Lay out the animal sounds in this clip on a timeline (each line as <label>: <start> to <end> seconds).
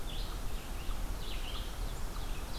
Red-eyed Vireo (Vireo olivaceus): 0.0 to 2.6 seconds
Ovenbird (Seiurus aurocapilla): 0.3 to 2.6 seconds